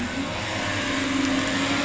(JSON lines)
{"label": "anthrophony, boat engine", "recorder": "SoundTrap 500"}